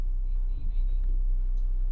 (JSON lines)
{"label": "anthrophony, boat engine", "recorder": "SoundTrap 300"}